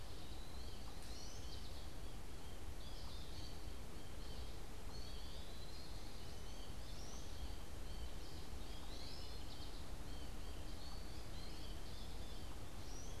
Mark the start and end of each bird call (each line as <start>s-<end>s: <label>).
0.0s-13.2s: American Goldfinch (Spinus tristis)